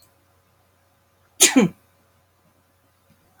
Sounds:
Sneeze